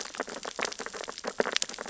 {"label": "biophony, sea urchins (Echinidae)", "recorder": "SoundTrap 600 or HydroMoth"}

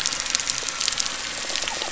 {"label": "anthrophony, boat engine", "recorder": "SoundTrap 300"}
{"label": "biophony", "recorder": "SoundTrap 300"}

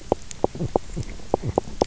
{"label": "biophony, knock croak", "recorder": "SoundTrap 300"}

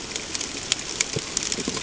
{"label": "ambient", "recorder": "HydroMoth"}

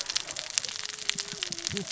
{"label": "biophony, cascading saw", "recorder": "SoundTrap 600 or HydroMoth"}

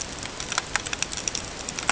{"label": "ambient", "recorder": "HydroMoth"}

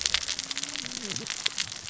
{"label": "biophony, cascading saw", "recorder": "SoundTrap 600 or HydroMoth"}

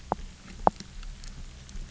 {"label": "biophony, knock", "recorder": "SoundTrap 300"}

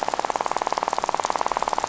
{"label": "biophony, rattle", "recorder": "SoundTrap 500"}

